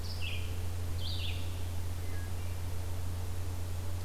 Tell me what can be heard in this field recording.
Red-eyed Vireo, Wood Thrush